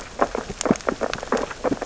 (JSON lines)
{"label": "biophony, sea urchins (Echinidae)", "recorder": "SoundTrap 600 or HydroMoth"}